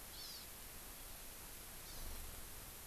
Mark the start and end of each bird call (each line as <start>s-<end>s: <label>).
0.1s-0.5s: Hawaii Amakihi (Chlorodrepanis virens)
1.8s-2.2s: Hawaii Amakihi (Chlorodrepanis virens)